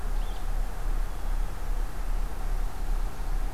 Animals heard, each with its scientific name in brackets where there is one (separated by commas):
Blue-headed Vireo (Vireo solitarius)